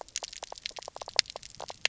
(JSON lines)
{"label": "biophony, knock croak", "recorder": "SoundTrap 300"}